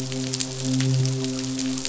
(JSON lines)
{"label": "biophony, midshipman", "recorder": "SoundTrap 500"}